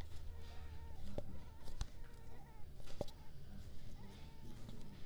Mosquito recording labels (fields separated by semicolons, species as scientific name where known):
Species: Culex pipiens complex; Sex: female; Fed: unfed; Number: one; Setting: cup